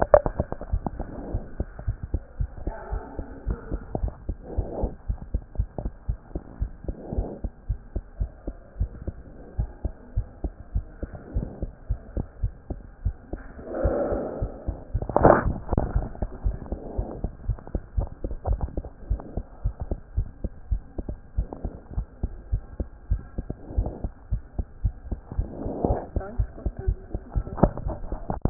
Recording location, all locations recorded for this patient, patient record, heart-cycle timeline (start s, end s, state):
aortic valve (AV)
aortic valve (AV)+pulmonary valve (PV)
#Age: Child
#Sex: Female
#Height: 88.0 cm
#Weight: 12.7 kg
#Pregnancy status: False
#Murmur: Absent
#Murmur locations: nan
#Most audible location: nan
#Systolic murmur timing: nan
#Systolic murmur shape: nan
#Systolic murmur grading: nan
#Systolic murmur pitch: nan
#Systolic murmur quality: nan
#Diastolic murmur timing: nan
#Diastolic murmur shape: nan
#Diastolic murmur grading: nan
#Diastolic murmur pitch: nan
#Diastolic murmur quality: nan
#Outcome: Abnormal
#Campaign: 2014 screening campaign
0.00	1.32	unannotated
1.32	1.44	S1
1.44	1.58	systole
1.58	1.68	S2
1.68	1.86	diastole
1.86	1.98	S1
1.98	2.12	systole
2.12	2.22	S2
2.22	2.38	diastole
2.38	2.50	S1
2.50	2.64	systole
2.64	2.74	S2
2.74	2.92	diastole
2.92	3.02	S1
3.02	3.18	systole
3.18	3.26	S2
3.26	3.46	diastole
3.46	3.58	S1
3.58	3.72	systole
3.72	3.80	S2
3.80	4.00	diastole
4.00	4.12	S1
4.12	4.28	systole
4.28	4.36	S2
4.36	4.56	diastole
4.56	4.68	S1
4.68	4.82	systole
4.82	4.92	S2
4.92	5.08	diastole
5.08	5.18	S1
5.18	5.32	systole
5.32	5.42	S2
5.42	5.58	diastole
5.58	5.68	S1
5.68	5.82	systole
5.82	5.92	S2
5.92	6.08	diastole
6.08	6.18	S1
6.18	6.34	systole
6.34	6.42	S2
6.42	6.60	diastole
6.60	6.72	S1
6.72	6.86	systole
6.86	6.96	S2
6.96	7.16	diastole
7.16	7.28	S1
7.28	7.42	systole
7.42	7.52	S2
7.52	7.68	diastole
7.68	7.78	S1
7.78	7.94	systole
7.94	8.02	S2
8.02	8.20	diastole
8.20	8.30	S1
8.30	8.46	systole
8.46	8.56	S2
8.56	8.78	diastole
8.78	8.90	S1
8.90	9.06	systole
9.06	9.16	S2
9.16	9.58	diastole
9.58	9.70	S1
9.70	9.84	systole
9.84	9.92	S2
9.92	10.16	diastole
10.16	10.26	S1
10.26	10.42	systole
10.42	10.52	S2
10.52	10.74	diastole
10.74	10.86	S1
10.86	11.00	systole
11.00	11.10	S2
11.10	11.34	diastole
11.34	11.48	S1
11.48	11.62	systole
11.62	11.70	S2
11.70	11.90	diastole
11.90	12.00	S1
12.00	12.16	systole
12.16	12.26	S2
12.26	12.42	diastole
12.42	12.52	S1
12.52	12.70	systole
12.70	12.80	S2
12.80	13.04	diastole
13.04	13.16	S1
13.16	13.32	systole
13.32	13.42	S2
13.42	13.80	diastole
13.80	28.50	unannotated